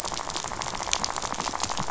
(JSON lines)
{"label": "biophony, rattle", "recorder": "SoundTrap 500"}